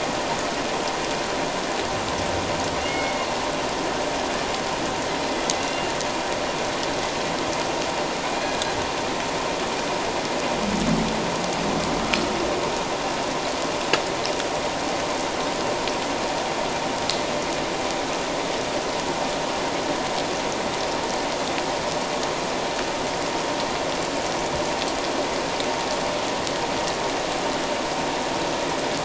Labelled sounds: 2.8	3.3	humpback whale, 2.1 to 3.0 kHz
5.5	5.9	humpback whale, 2.7 to 2.8 kHz

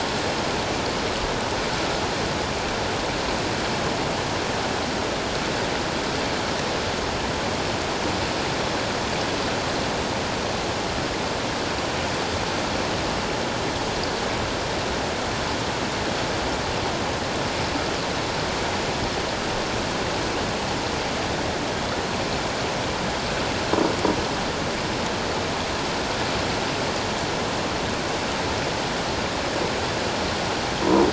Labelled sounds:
30.8	31.1	croaking sound likely from a nearby submerged object, 0.91 to 1.1 kHz

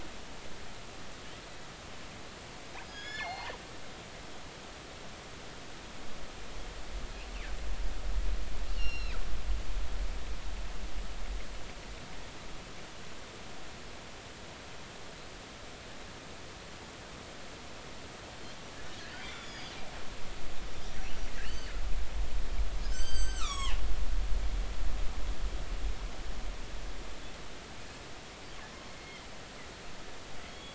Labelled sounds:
2.8	3.6	killer whale, northern resident, G clan, GG subclan, call N29, 0.80 to 7.0 kHz
3.0	3.5	killer whale, northern resident, G clan, GG subclan, call N24ii, 2.0 to 4.4 kHz
8.8	9.2	killer whale, northern resident, G clan, GG subclan, 2.3 to 5.6 kHz
9.8	10.2	killer whale, northern resident, G clan, GG subclan, 3.8 to 4.5 kHz
19.2	19.8	killer whale, northern resident, G clan, 2.0 to 6.9 kHz
20.8	21.7	killer whale, northern resident, G clan, call N23i, 2.5 to 5.9 kHz
22.8	23.8	killer whale, northern resident, G clan, GG subclan, call N23ii, 0.80 to 8.0 kHz
29.0	29.3	killer whale, northern resident, G clan, GG subclan, call N23ii, 2.0 to 2.2 kHz
30.5	30.7	killer whale, northern resident, G clan, GG subclan, call N23ii, 3.2 to 3.5 kHz

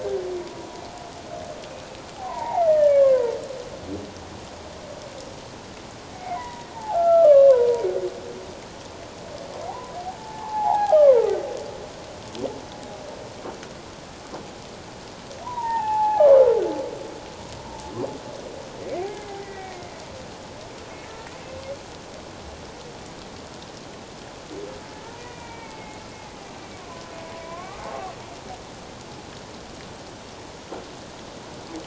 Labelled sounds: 2.2	3.3	humpback whale, 0.78 to 3.0 kHz
6.1	7.9	humpback whale, 0.78 to 2.3 kHz
9.7	11.2	humpback whale, 0.78 to 1.7 kHz
15.4	16.3	humpback whale, 0.78 to 1.9 kHz
18.8	19.0	humpback whale, 2.0 to 2.3 kHz
19.4	19.9	humpback whale, 1.8 to 2.4 kHz
21.0	21.3	humpback whale, 1.7 to 1.9 kHz
25.2	26.0	humpback whale, 1.8 to 2.5 kHz
27.4	28.1	humpback whale, 0.78 to 1.3 kHz

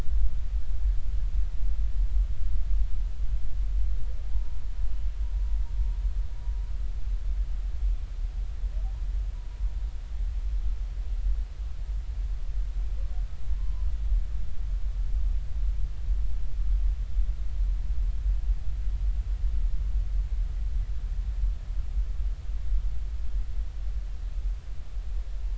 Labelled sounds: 4.3	4.6	humpback whale, 0.86 to 0.99 kHz
13.6	13.9	humpback whale, 0.96 to 1.1 kHz

